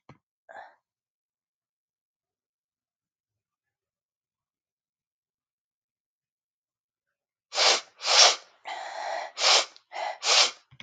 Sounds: Sniff